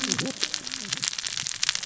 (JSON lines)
{"label": "biophony, cascading saw", "recorder": "SoundTrap 600 or HydroMoth"}